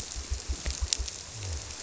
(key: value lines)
label: biophony
recorder: SoundTrap 300